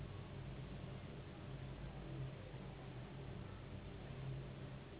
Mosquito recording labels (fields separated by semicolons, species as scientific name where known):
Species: Anopheles gambiae s.s.; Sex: female; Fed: unfed; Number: one; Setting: insect culture